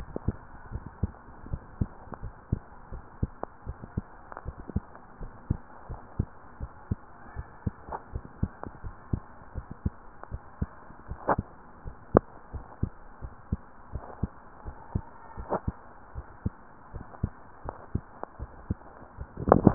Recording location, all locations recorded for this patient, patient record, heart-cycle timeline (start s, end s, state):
tricuspid valve (TV)
aortic valve (AV)+pulmonary valve (PV)+tricuspid valve (TV)+mitral valve (MV)
#Age: Child
#Sex: Male
#Height: 121.0 cm
#Weight: 26.1 kg
#Pregnancy status: False
#Murmur: Absent
#Murmur locations: nan
#Most audible location: nan
#Systolic murmur timing: nan
#Systolic murmur shape: nan
#Systolic murmur grading: nan
#Systolic murmur pitch: nan
#Systolic murmur quality: nan
#Diastolic murmur timing: nan
#Diastolic murmur shape: nan
#Diastolic murmur grading: nan
#Diastolic murmur pitch: nan
#Diastolic murmur quality: nan
#Outcome: Abnormal
#Campaign: 2015 screening campaign
0.00	0.38	unannotated
0.38	0.70	diastole
0.70	0.86	S1
0.86	0.96	systole
0.96	1.10	S2
1.10	1.46	diastole
1.46	1.64	S1
1.64	1.74	systole
1.74	1.90	S2
1.90	2.18	diastole
2.18	2.34	S1
2.34	2.44	systole
2.44	2.60	S2
2.60	2.92	diastole
2.92	3.04	S1
3.04	3.16	systole
3.16	3.30	S2
3.30	3.66	diastole
3.66	3.80	S1
3.80	3.90	systole
3.90	4.04	S2
4.04	4.46	diastole
4.46	4.58	S1
4.58	4.70	systole
4.70	4.84	S2
4.84	5.20	diastole
5.20	5.32	S1
5.32	5.42	systole
5.42	5.58	S2
5.58	5.90	diastole
5.90	6.02	S1
6.02	6.16	systole
6.16	6.28	S2
6.28	6.60	diastole
6.60	6.72	S1
6.72	6.88	systole
6.88	7.00	S2
7.00	7.36	diastole
7.36	7.48	S1
7.48	7.62	systole
7.62	7.74	S2
7.74	8.12	diastole
8.12	8.26	S1
8.26	8.38	systole
8.38	8.50	S2
8.50	8.84	diastole
8.84	8.96	S1
8.96	9.08	systole
9.08	9.22	S2
9.22	9.56	diastole
9.56	9.70	S1
9.70	9.82	systole
9.82	9.96	S2
9.96	10.32	diastole
10.32	10.44	S1
10.44	10.58	systole
10.58	10.72	S2
10.72	11.08	diastole
11.08	11.20	S1
11.20	11.28	systole
11.28	11.44	S2
11.44	11.84	diastole
11.84	11.98	S1
11.98	12.12	systole
12.12	12.22	S2
12.22	12.54	diastole
12.54	12.66	S1
12.66	12.78	systole
12.78	12.90	S2
12.90	13.22	diastole
13.22	13.32	S1
13.32	13.48	systole
13.48	13.58	S2
13.58	13.92	diastole
13.92	14.08	S1
14.08	14.20	systole
14.20	14.34	S2
14.34	14.66	diastole
14.66	14.78	S1
14.78	14.90	systole
14.90	15.06	S2
15.06	15.34	diastole
15.34	15.48	S1
15.48	15.62	systole
15.62	15.78	S2
15.78	16.12	diastole
16.12	16.28	S1
16.28	16.42	systole
16.42	16.56	S2
16.56	16.94	diastole
16.94	17.08	S1
17.08	17.20	systole
17.20	17.32	S2
17.32	17.66	diastole
17.66	17.76	S1
17.76	17.90	systole
17.90	18.02	S2
18.02	18.40	diastole
18.40	18.52	S1
18.52	18.65	systole
18.65	18.77	S2
18.77	19.14	diastole
19.14	19.74	unannotated